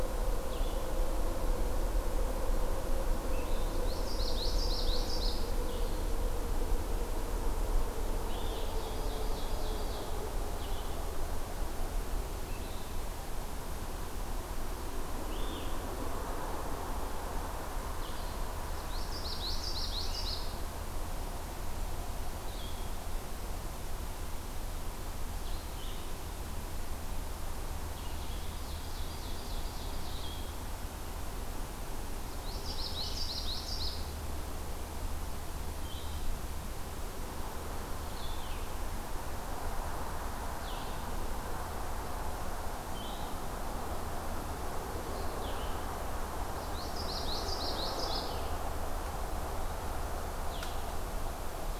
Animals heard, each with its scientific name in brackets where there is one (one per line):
Common Yellowthroat (Geothlypis trichas)
Blue-headed Vireo (Vireo solitarius)
Ovenbird (Seiurus aurocapilla)